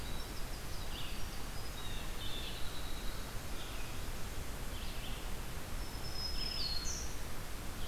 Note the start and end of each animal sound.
[0.00, 3.39] Winter Wren (Troglodytes hiemalis)
[0.00, 7.88] Red-eyed Vireo (Vireo olivaceus)
[1.71, 2.79] Blue Jay (Cyanocitta cristata)
[5.54, 7.17] Black-throated Green Warbler (Setophaga virens)

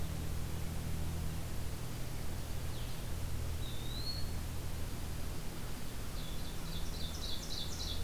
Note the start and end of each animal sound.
[0.00, 8.03] Blue-headed Vireo (Vireo solitarius)
[3.59, 4.40] Eastern Wood-Pewee (Contopus virens)
[6.05, 8.03] Ovenbird (Seiurus aurocapilla)

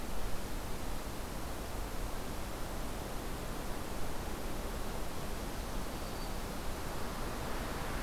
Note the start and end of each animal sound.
[5.61, 6.62] Black-throated Green Warbler (Setophaga virens)

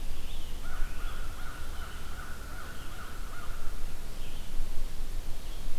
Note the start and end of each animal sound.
[0.00, 2.99] American Robin (Turdus migratorius)
[0.00, 5.77] Red-eyed Vireo (Vireo olivaceus)
[0.56, 4.04] American Crow (Corvus brachyrhynchos)

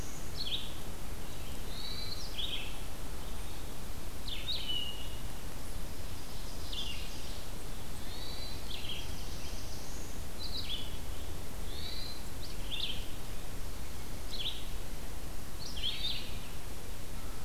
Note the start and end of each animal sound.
[0.00, 17.44] Red-eyed Vireo (Vireo olivaceus)
[1.59, 2.32] Hermit Thrush (Catharus guttatus)
[5.80, 7.60] Ovenbird (Seiurus aurocapilla)
[7.97, 8.59] Hermit Thrush (Catharus guttatus)
[8.52, 10.27] Black-throated Blue Warbler (Setophaga caerulescens)
[11.61, 12.32] Hermit Thrush (Catharus guttatus)
[15.73, 16.31] Hermit Thrush (Catharus guttatus)

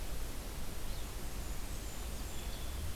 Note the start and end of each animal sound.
[0.00, 2.95] Red-eyed Vireo (Vireo olivaceus)
[1.02, 2.63] Blackburnian Warbler (Setophaga fusca)

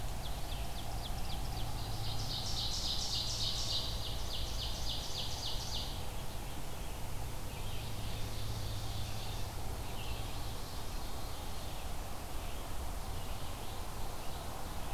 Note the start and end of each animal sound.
[0.00, 6.09] Ovenbird (Seiurus aurocapilla)
[0.00, 14.93] Red-eyed Vireo (Vireo olivaceus)
[7.27, 11.85] Ovenbird (Seiurus aurocapilla)
[12.95, 14.51] Ovenbird (Seiurus aurocapilla)

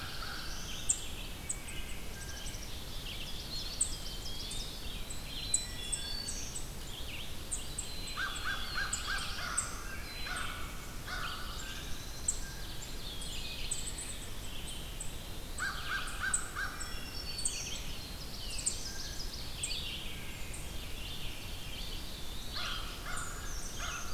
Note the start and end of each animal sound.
[0.00, 0.67] American Crow (Corvus brachyrhynchos)
[0.00, 1.02] Black-throated Blue Warbler (Setophaga caerulescens)
[0.00, 2.00] Red-eyed Vireo (Vireo olivaceus)
[0.00, 24.13] unknown mammal
[1.33, 2.00] Wood Thrush (Hylocichla mustelina)
[2.06, 2.50] Blue Jay (Cyanocitta cristata)
[2.06, 3.71] Black-capped Chickadee (Poecile atricapillus)
[2.80, 24.13] Red-eyed Vireo (Vireo olivaceus)
[3.08, 4.73] Ovenbird (Seiurus aurocapilla)
[3.38, 4.85] Eastern Wood-Pewee (Contopus virens)
[4.99, 6.64] Black-throated Green Warbler (Setophaga virens)
[5.11, 6.24] Black-capped Chickadee (Poecile atricapillus)
[7.69, 8.79] Black-capped Chickadee (Poecile atricapillus)
[8.12, 11.58] American Crow (Corvus brachyrhynchos)
[8.53, 10.01] Black-throated Blue Warbler (Setophaga caerulescens)
[9.94, 10.59] Black-capped Chickadee (Poecile atricapillus)
[11.12, 12.49] Eastern Wood-Pewee (Contopus virens)
[11.35, 12.75] Black-capped Chickadee (Poecile atricapillus)
[11.54, 12.87] Blue Jay (Cyanocitta cristata)
[12.15, 13.90] Ovenbird (Seiurus aurocapilla)
[15.24, 17.14] American Crow (Corvus brachyrhynchos)
[16.41, 17.88] Black-throated Green Warbler (Setophaga virens)
[17.59, 19.39] Ovenbird (Seiurus aurocapilla)
[17.84, 19.06] Black-throated Blue Warbler (Setophaga caerulescens)
[18.79, 19.28] Blue Jay (Cyanocitta cristata)
[19.97, 20.50] Blue Jay (Cyanocitta cristata)
[21.65, 22.76] Eastern Wood-Pewee (Contopus virens)
[22.42, 24.13] American Crow (Corvus brachyrhynchos)
[23.05, 24.13] Brown Creeper (Certhia americana)

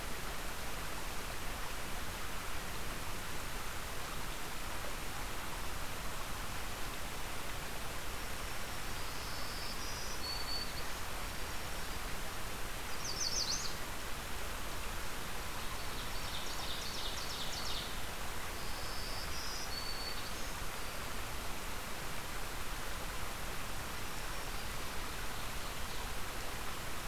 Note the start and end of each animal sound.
[8.10, 10.96] Black-throated Green Warbler (Setophaga virens)
[11.21, 12.36] Black-throated Green Warbler (Setophaga virens)
[12.93, 13.79] Yellow Warbler (Setophaga petechia)
[15.69, 17.00] Black-throated Green Warbler (Setophaga virens)
[15.79, 17.85] Ovenbird (Seiurus aurocapilla)
[18.48, 21.38] Black-throated Green Warbler (Setophaga virens)
[23.91, 24.82] Black-throated Green Warbler (Setophaga virens)
[24.91, 26.70] Ovenbird (Seiurus aurocapilla)

